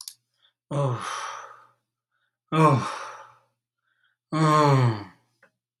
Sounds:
Sigh